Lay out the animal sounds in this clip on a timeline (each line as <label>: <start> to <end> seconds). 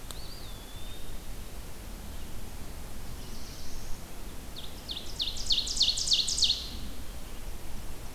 Eastern Wood-Pewee (Contopus virens): 0.0 to 1.4 seconds
Black-throated Blue Warbler (Setophaga caerulescens): 2.8 to 4.2 seconds
Ovenbird (Seiurus aurocapilla): 4.4 to 6.8 seconds